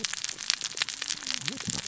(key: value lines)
label: biophony, cascading saw
recorder: SoundTrap 600 or HydroMoth